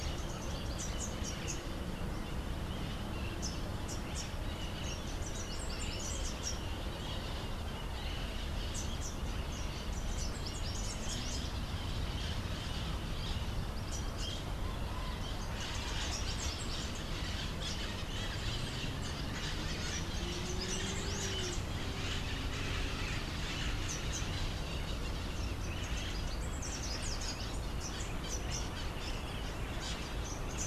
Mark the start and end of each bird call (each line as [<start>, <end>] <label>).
[0.00, 21.75] Rufous-capped Warbler (Basileuterus rufifrons)
[0.00, 22.25] Crimson-fronted Parakeet (Psittacara finschi)
[23.65, 30.67] Rufous-capped Warbler (Basileuterus rufifrons)
[25.45, 30.67] Crimson-fronted Parakeet (Psittacara finschi)